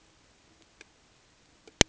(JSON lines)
{"label": "ambient", "recorder": "HydroMoth"}